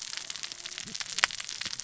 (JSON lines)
{"label": "biophony, cascading saw", "recorder": "SoundTrap 600 or HydroMoth"}